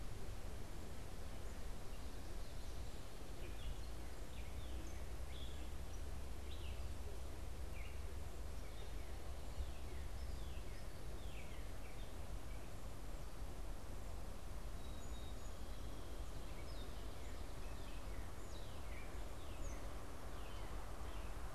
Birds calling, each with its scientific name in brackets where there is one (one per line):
Song Sparrow (Melospiza melodia)
Gray Catbird (Dumetella carolinensis)
Northern Cardinal (Cardinalis cardinalis)